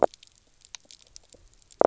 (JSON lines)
{"label": "biophony, knock croak", "recorder": "SoundTrap 300"}